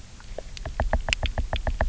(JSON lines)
{"label": "biophony, knock", "recorder": "SoundTrap 300"}